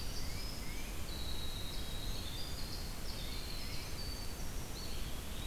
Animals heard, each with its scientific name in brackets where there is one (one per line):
Tufted Titmouse (Baeolophus bicolor)
Winter Wren (Troglodytes hiemalis)
Scarlet Tanager (Piranga olivacea)
Eastern Wood-Pewee (Contopus virens)